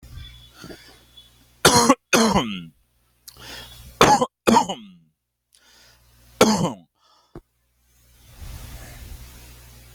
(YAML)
expert_labels:
- quality: ok
  cough_type: unknown
  dyspnea: false
  wheezing: false
  stridor: false
  choking: false
  congestion: false
  nothing: true
  diagnosis: healthy cough
  severity: pseudocough/healthy cough
age: 33
gender: male
respiratory_condition: true
fever_muscle_pain: false
status: symptomatic